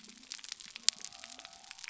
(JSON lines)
{"label": "biophony", "recorder": "SoundTrap 300"}